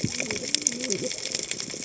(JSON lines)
{"label": "biophony, cascading saw", "recorder": "HydroMoth"}